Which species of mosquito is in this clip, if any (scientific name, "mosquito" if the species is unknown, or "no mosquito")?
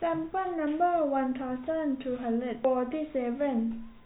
no mosquito